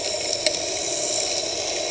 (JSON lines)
{"label": "anthrophony, boat engine", "recorder": "HydroMoth"}